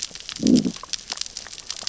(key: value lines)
label: biophony, growl
recorder: SoundTrap 600 or HydroMoth